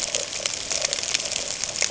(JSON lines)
{"label": "ambient", "recorder": "HydroMoth"}